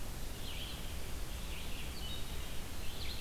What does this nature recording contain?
Red-eyed Vireo